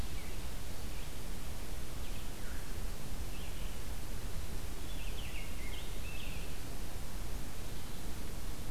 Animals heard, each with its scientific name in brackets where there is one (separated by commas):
Scarlet Tanager (Piranga olivacea)